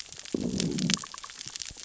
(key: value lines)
label: biophony, growl
recorder: SoundTrap 600 or HydroMoth